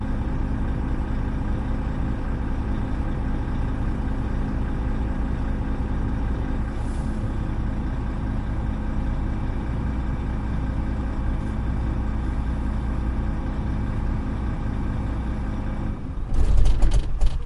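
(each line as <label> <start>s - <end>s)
A vehicle engine hums rhythmically in a steady pattern. 0.0s - 16.3s
The sound of vehicle engines turning off gradually fades. 16.3s - 17.5s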